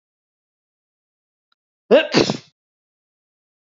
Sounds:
Sneeze